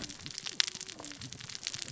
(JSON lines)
{"label": "biophony, cascading saw", "recorder": "SoundTrap 600 or HydroMoth"}